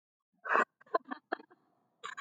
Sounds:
Laughter